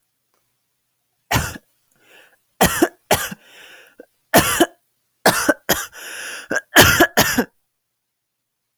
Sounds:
Cough